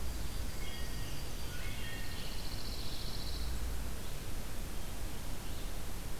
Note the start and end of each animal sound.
0.2s-1.7s: Yellow-rumped Warbler (Setophaga coronata)
0.3s-2.3s: Wood Thrush (Hylocichla mustelina)
0.5s-3.3s: Scarlet Tanager (Piranga olivacea)
1.7s-3.6s: Pine Warbler (Setophaga pinus)
3.8s-5.8s: Red-eyed Vireo (Vireo olivaceus)

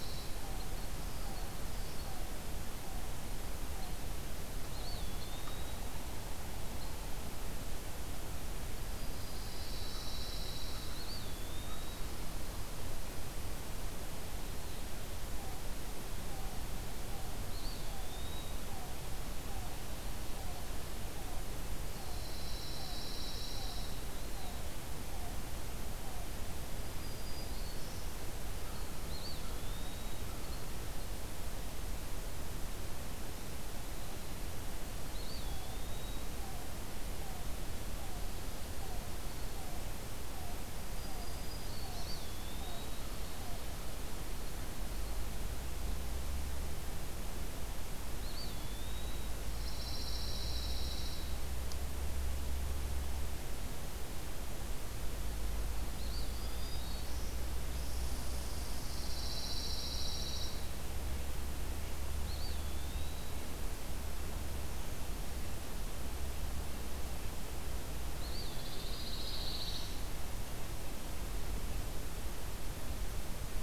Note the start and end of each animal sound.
0.0s-0.4s: Pine Warbler (Setophaga pinus)
0.3s-5.3s: Yellow-billed Cuckoo (Coccyzus americanus)
4.6s-5.9s: Eastern Wood-Pewee (Contopus virens)
8.8s-10.2s: Black-throated Green Warbler (Setophaga virens)
9.4s-11.1s: Pine Warbler (Setophaga pinus)
10.7s-12.0s: Eastern Wood-Pewee (Contopus virens)
15.2s-26.5s: Yellow-billed Cuckoo (Coccyzus americanus)
17.3s-18.6s: Eastern Wood-Pewee (Contopus virens)
21.9s-24.0s: Pine Warbler (Setophaga pinus)
26.7s-28.3s: Black-throated Green Warbler (Setophaga virens)
29.0s-30.2s: Eastern Wood-Pewee (Contopus virens)
35.1s-36.4s: Eastern Wood-Pewee (Contopus virens)
35.3s-44.2s: Yellow-billed Cuckoo (Coccyzus americanus)
40.8s-42.2s: Black-throated Green Warbler (Setophaga virens)
41.9s-43.0s: Eastern Wood-Pewee (Contopus virens)
48.1s-49.3s: Eastern Wood-Pewee (Contopus virens)
49.5s-51.3s: Pine Warbler (Setophaga pinus)
55.9s-57.0s: Eastern Wood-Pewee (Contopus virens)
56.1s-57.6s: Black-throated Green Warbler (Setophaga virens)
57.7s-60.7s: Red Squirrel (Tamiasciurus hudsonicus)
58.9s-60.7s: Pine Warbler (Setophaga pinus)
62.0s-63.5s: Eastern Wood-Pewee (Contopus virens)
68.2s-69.0s: Eastern Wood-Pewee (Contopus virens)
68.5s-70.0s: Pine Warbler (Setophaga pinus)
68.6s-70.1s: Black-throated Green Warbler (Setophaga virens)

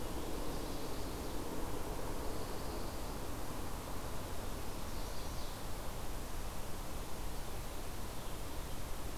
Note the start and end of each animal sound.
0.3s-1.3s: Chestnut-sided Warbler (Setophaga pensylvanica)
1.9s-3.2s: Pine Warbler (Setophaga pinus)
4.7s-5.5s: Chestnut-sided Warbler (Setophaga pensylvanica)

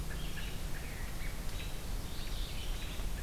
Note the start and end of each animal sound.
0.0s-3.2s: Red-eyed Vireo (Vireo olivaceus)
2.0s-2.8s: Mourning Warbler (Geothlypis philadelphia)

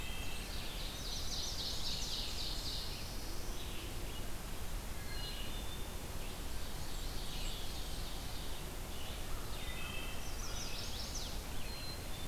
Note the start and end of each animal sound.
0.0s-0.5s: Blackburnian Warbler (Setophaga fusca)
0.0s-0.6s: Wood Thrush (Hylocichla mustelina)
0.0s-12.3s: Red-eyed Vireo (Vireo olivaceus)
0.3s-3.0s: Ovenbird (Seiurus aurocapilla)
0.8s-2.3s: Chestnut-sided Warbler (Setophaga pensylvanica)
1.9s-3.6s: Black-throated Blue Warbler (Setophaga caerulescens)
4.8s-6.1s: Wood Thrush (Hylocichla mustelina)
6.1s-8.8s: Ovenbird (Seiurus aurocapilla)
6.8s-7.8s: Eastern Wood-Pewee (Contopus virens)
6.8s-8.2s: Blackburnian Warbler (Setophaga fusca)
9.4s-10.3s: Wood Thrush (Hylocichla mustelina)
10.1s-11.4s: Chestnut-sided Warbler (Setophaga pensylvanica)
11.6s-12.3s: Black-capped Chickadee (Poecile atricapillus)

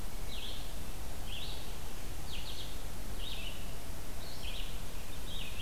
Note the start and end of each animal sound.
0.0s-5.6s: Red-eyed Vireo (Vireo olivaceus)

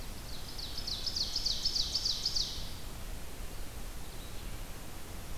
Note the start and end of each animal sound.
0.1s-2.8s: Ovenbird (Seiurus aurocapilla)

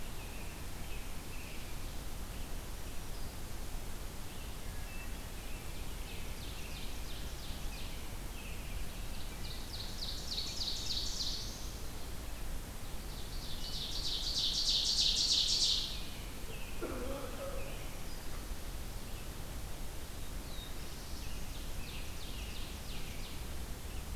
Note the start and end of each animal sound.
0.0s-1.9s: American Robin (Turdus migratorius)
4.8s-6.9s: American Robin (Turdus migratorius)
5.5s-8.0s: Ovenbird (Seiurus aurocapilla)
7.7s-9.6s: American Robin (Turdus migratorius)
8.9s-11.6s: Ovenbird (Seiurus aurocapilla)
10.5s-11.8s: Black-throated Blue Warbler (Setophaga caerulescens)
12.7s-16.2s: Ovenbird (Seiurus aurocapilla)
15.7s-18.1s: American Robin (Turdus migratorius)
19.9s-21.4s: Black-throated Blue Warbler (Setophaga caerulescens)
21.0s-23.6s: Ovenbird (Seiurus aurocapilla)

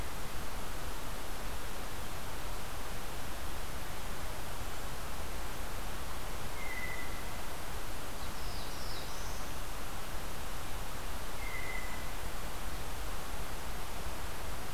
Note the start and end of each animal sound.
6.5s-7.4s: Blue Jay (Cyanocitta cristata)
8.1s-9.6s: Black-throated Blue Warbler (Setophaga caerulescens)
11.4s-12.1s: Blue Jay (Cyanocitta cristata)
11.5s-12.0s: Brown Creeper (Certhia americana)

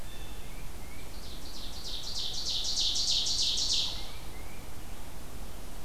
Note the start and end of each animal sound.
0.0s-0.6s: Blue Jay (Cyanocitta cristata)
0.4s-1.1s: Tufted Titmouse (Baeolophus bicolor)
0.8s-4.2s: Ovenbird (Seiurus aurocapilla)
3.8s-4.7s: Tufted Titmouse (Baeolophus bicolor)

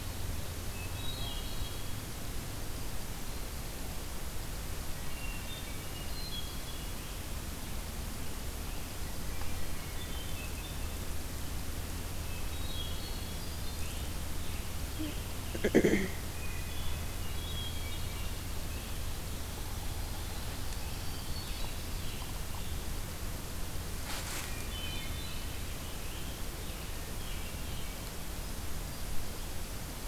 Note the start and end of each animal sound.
0.6s-2.2s: Hermit Thrush (Catharus guttatus)
4.9s-6.9s: Hermit Thrush (Catharus guttatus)
9.4s-11.1s: Hermit Thrush (Catharus guttatus)
12.1s-13.8s: Hermit Thrush (Catharus guttatus)
13.7s-15.6s: Scarlet Tanager (Piranga olivacea)
16.3s-18.5s: Hermit Thrush (Catharus guttatus)
19.3s-21.8s: Yellow-bellied Sapsucker (Sphyrapicus varius)
20.9s-22.9s: Scarlet Tanager (Piranga olivacea)
21.0s-22.3s: Hermit Thrush (Catharus guttatus)
24.3s-25.7s: Hermit Thrush (Catharus guttatus)
25.1s-28.1s: Scarlet Tanager (Piranga olivacea)

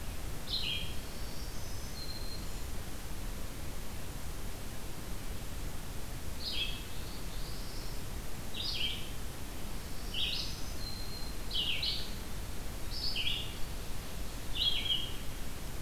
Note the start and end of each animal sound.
0.0s-1.0s: Red-eyed Vireo (Vireo olivaceus)
0.9s-2.7s: Black-throated Green Warbler (Setophaga virens)
6.3s-15.8s: Red-eyed Vireo (Vireo olivaceus)
6.4s-8.1s: Black-throated Blue Warbler (Setophaga caerulescens)
9.7s-11.4s: Black-throated Green Warbler (Setophaga virens)

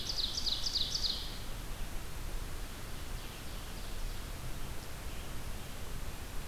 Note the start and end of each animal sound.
0.0s-1.5s: Ovenbird (Seiurus aurocapilla)
0.0s-6.5s: Red-eyed Vireo (Vireo olivaceus)
2.5s-4.4s: Ovenbird (Seiurus aurocapilla)

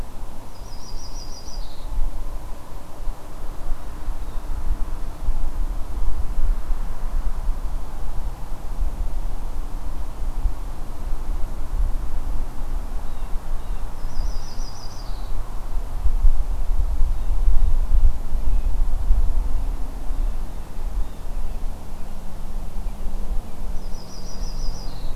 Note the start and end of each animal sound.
0.4s-2.0s: Yellow-rumped Warbler (Setophaga coronata)
4.1s-4.5s: Blue Jay (Cyanocitta cristata)
12.9s-14.0s: Blue Jay (Cyanocitta cristata)
14.0s-15.3s: Yellow-rumped Warbler (Setophaga coronata)
20.0s-21.3s: Blue Jay (Cyanocitta cristata)
23.7s-25.2s: Yellow-rumped Warbler (Setophaga coronata)

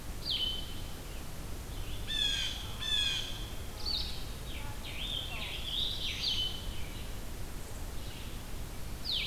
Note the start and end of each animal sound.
0.1s-6.8s: Blue-headed Vireo (Vireo solitarius)
0.4s-9.3s: Red-eyed Vireo (Vireo olivaceus)
2.0s-3.3s: Blue Jay (Cyanocitta cristata)
4.3s-6.7s: Scarlet Tanager (Piranga olivacea)
5.5s-6.6s: Black-throated Blue Warbler (Setophaga caerulescens)

